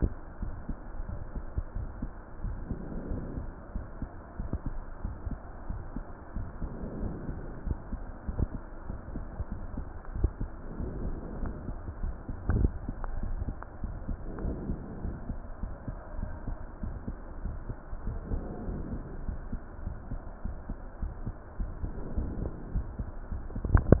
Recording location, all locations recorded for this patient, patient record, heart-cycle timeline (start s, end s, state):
pulmonary valve (PV)
aortic valve (AV)+pulmonary valve (PV)+tricuspid valve (TV)
#Age: nan
#Sex: Female
#Height: nan
#Weight: nan
#Pregnancy status: True
#Murmur: Absent
#Murmur locations: nan
#Most audible location: nan
#Systolic murmur timing: nan
#Systolic murmur shape: nan
#Systolic murmur grading: nan
#Systolic murmur pitch: nan
#Systolic murmur quality: nan
#Diastolic murmur timing: nan
#Diastolic murmur shape: nan
#Diastolic murmur grading: nan
#Diastolic murmur pitch: nan
#Diastolic murmur quality: nan
#Outcome: Normal
#Campaign: 2015 screening campaign
0.12	0.40	diastole
0.40	0.54	S1
0.54	0.64	systole
0.64	0.76	S2
0.76	1.06	diastole
1.06	1.20	S1
1.20	1.32	systole
1.32	1.44	S2
1.44	1.74	diastole
1.74	1.90	S1
1.90	1.98	systole
1.98	2.10	S2
2.10	2.42	diastole
2.42	2.60	S1
2.60	2.68	systole
2.68	2.80	S2
2.80	3.10	diastole
3.10	3.24	S1
3.24	3.36	systole
3.36	3.46	S2
3.46	3.74	diastole
3.74	3.86	S1
3.86	3.98	systole
3.98	4.08	S2
4.08	4.38	diastole
4.38	4.52	S1
4.52	4.62	systole
4.62	4.74	S2
4.74	5.04	diastole
5.04	5.18	S1
5.18	5.24	systole
5.24	5.38	S2
5.38	5.68	diastole
5.68	5.82	S1
5.82	5.90	systole
5.90	6.04	S2
6.04	6.34	diastole
6.34	6.48	S1
6.48	6.58	systole
6.58	6.70	S2
6.70	7.02	diastole
7.02	7.16	S1
7.16	7.26	systole
7.26	7.36	S2
7.36	7.64	diastole
7.64	7.78	S1
7.78	7.88	systole
7.88	8.00	S2
8.00	8.36	diastole
8.36	8.52	S1
8.52	8.56	systole
8.56	8.62	S2
8.62	8.88	diastole
8.88	9.00	S1
9.00	9.14	systole
9.14	9.28	S2
9.28	9.58	diastole
9.58	9.68	S1
9.68	9.72	systole
9.72	9.86	S2
9.86	10.14	diastole
10.14	10.32	S1
10.32	10.38	systole
10.38	10.50	S2
10.50	10.78	diastole
10.78	10.94	S1
10.94	10.98	systole
10.98	11.14	S2
11.14	11.40	diastole
11.40	11.54	S1
11.54	11.66	systole
11.66	11.76	S2
11.76	12.00	diastole
12.00	12.14	S1
12.14	12.18	systole
12.18	12.24	S2
12.24	12.52	diastole
12.52	12.70	S1
12.70	12.80	systole
12.80	12.96	S2
12.96	13.24	diastole
13.24	13.42	S1
13.42	13.46	systole
13.46	13.56	S2
13.56	13.82	diastole
13.82	13.96	S1
13.96	14.06	systole
14.06	14.18	S2
14.18	14.42	diastole
14.42	14.58	S1
14.58	14.62	systole
14.62	14.76	S2
14.76	15.02	diastole
15.02	15.16	S1
15.16	15.26	systole
15.26	15.38	S2
15.38	15.62	diastole
15.62	15.76	S1
15.76	15.86	systole
15.86	15.96	S2
15.96	16.22	diastole
16.22	16.36	S1
16.36	16.46	systole
16.46	16.58	S2
16.58	16.84	diastole
16.84	17.00	S1
17.00	17.06	systole
17.06	17.16	S2
17.16	17.42	diastole
17.42	17.56	S1
17.56	17.68	systole
17.68	17.76	S2
17.76	18.06	diastole
18.06	18.24	S1
18.24	18.32	systole
18.32	18.44	S2
18.44	18.68	diastole
18.68	18.84	S1
18.84	18.90	systole
18.90	19.00	S2
19.00	19.26	diastole
19.26	19.40	S1
19.40	19.50	systole
19.50	19.60	S2
19.60	19.86	diastole
19.86	19.98	S1
19.98	20.10	systole
20.10	20.20	S2
20.20	20.44	diastole
20.44	20.58	S1
20.58	20.70	systole
20.70	20.78	S2
20.78	21.02	diastole
21.02	21.12	S1
21.12	21.22	systole
21.22	21.34	S2
21.34	21.60	diastole
21.60	21.74	S1
21.74	21.82	systole
21.82	21.92	S2
21.92	22.16	diastole
22.16	22.32	S1
22.32	22.38	systole
22.38	22.50	S2
22.50	22.74	diastole
22.74	22.88	S1
22.88	22.96	systole
22.96	23.06	S2
23.06	23.30	diastole
23.30	23.42	S1
23.42	23.44	systole
23.44	23.48	S2
23.48	23.72	diastole
23.72	23.86	S1
23.86	23.90	systole
23.90	24.00	S2